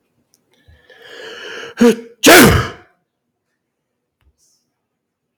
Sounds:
Sneeze